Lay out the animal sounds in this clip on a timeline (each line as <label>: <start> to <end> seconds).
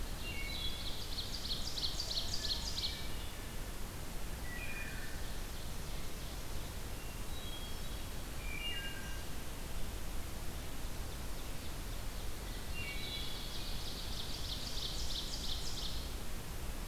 Wood Thrush (Hylocichla mustelina): 0.1 to 0.9 seconds
Ovenbird (Seiurus aurocapilla): 0.2 to 3.6 seconds
Hermit Thrush (Catharus guttatus): 2.1 to 3.5 seconds
Wood Thrush (Hylocichla mustelina): 4.4 to 5.2 seconds
Ovenbird (Seiurus aurocapilla): 4.6 to 6.9 seconds
Hermit Thrush (Catharus guttatus): 6.8 to 8.3 seconds
Wood Thrush (Hylocichla mustelina): 8.3 to 9.3 seconds
Ovenbird (Seiurus aurocapilla): 11.0 to 16.4 seconds
Wood Thrush (Hylocichla mustelina): 12.7 to 13.5 seconds